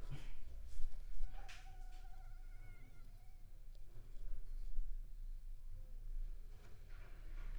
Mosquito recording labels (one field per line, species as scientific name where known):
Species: Anopheles gambiae s.l.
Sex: female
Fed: unfed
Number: one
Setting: cup